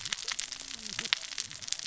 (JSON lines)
{"label": "biophony, cascading saw", "recorder": "SoundTrap 600 or HydroMoth"}